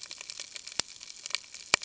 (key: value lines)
label: ambient
recorder: HydroMoth